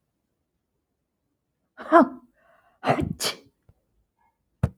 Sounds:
Sneeze